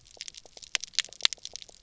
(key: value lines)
label: biophony, pulse
recorder: SoundTrap 300